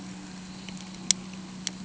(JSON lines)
{"label": "anthrophony, boat engine", "recorder": "HydroMoth"}